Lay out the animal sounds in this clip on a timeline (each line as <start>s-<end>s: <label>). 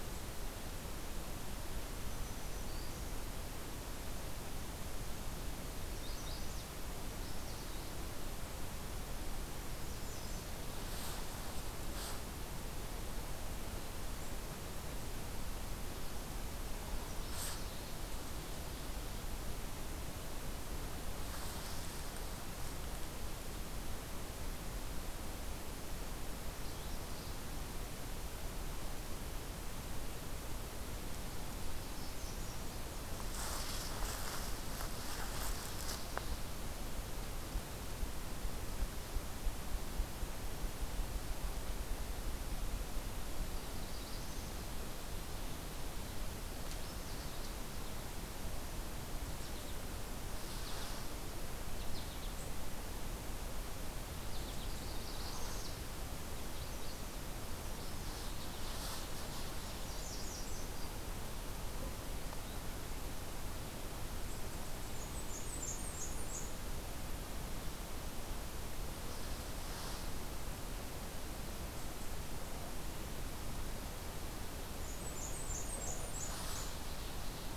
1.8s-3.2s: Black-throated Green Warbler (Setophaga virens)
5.8s-7.7s: Magnolia Warbler (Setophaga magnolia)
9.4s-10.5s: American Redstart (Setophaga ruticilla)
26.6s-27.2s: Magnolia Warbler (Setophaga magnolia)
31.8s-32.9s: American Redstart (Setophaga ruticilla)
43.3s-44.7s: Northern Parula (Setophaga americana)
46.6s-47.5s: Magnolia Warbler (Setophaga magnolia)
49.2s-49.9s: American Goldfinch (Spinus tristis)
50.4s-51.0s: American Goldfinch (Spinus tristis)
51.7s-52.4s: American Goldfinch (Spinus tristis)
54.1s-54.8s: American Goldfinch (Spinus tristis)
54.6s-55.8s: Northern Parula (Setophaga americana)
56.1s-57.1s: Magnolia Warbler (Setophaga magnolia)
59.6s-60.6s: American Redstart (Setophaga ruticilla)
64.6s-66.5s: Blackburnian Warbler (Setophaga fusca)
74.6s-76.8s: Blackburnian Warbler (Setophaga fusca)